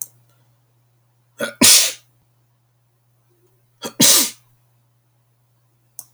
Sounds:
Sneeze